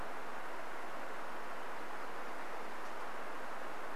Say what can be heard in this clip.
forest ambience